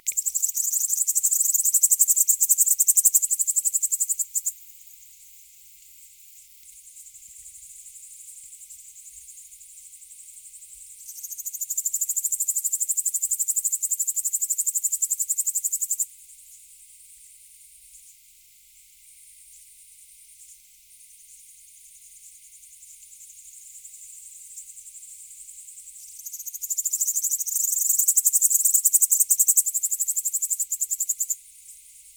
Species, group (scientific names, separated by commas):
Pholidoptera littoralis, Orthoptera